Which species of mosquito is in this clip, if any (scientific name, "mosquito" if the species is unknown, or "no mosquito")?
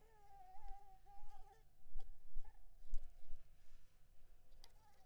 Anopheles maculipalpis